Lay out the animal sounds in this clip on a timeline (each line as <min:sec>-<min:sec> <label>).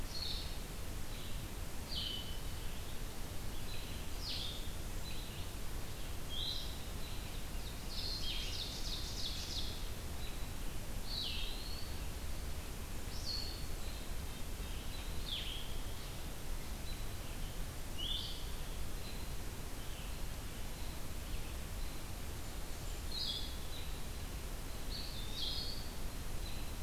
0:00.0-0:26.8 Blue-headed Vireo (Vireo solitarius)
0:07.6-0:09.8 Ovenbird (Seiurus aurocapilla)
0:11.0-0:12.1 Eastern Wood-Pewee (Contopus virens)
0:13.3-0:15.0 Red-breasted Nuthatch (Sitta canadensis)